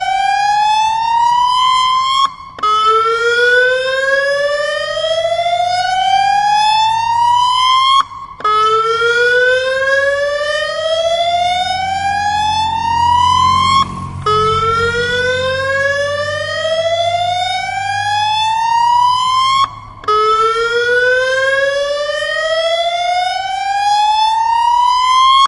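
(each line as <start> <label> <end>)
0.0 An emergency sound repeatedly rises in pitch during each round. 25.5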